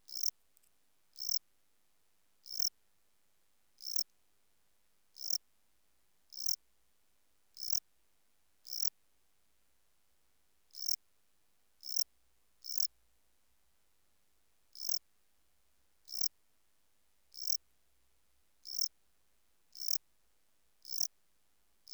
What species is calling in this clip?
Melanogryllus desertus